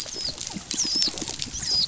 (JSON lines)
{"label": "biophony", "recorder": "SoundTrap 500"}
{"label": "biophony, dolphin", "recorder": "SoundTrap 500"}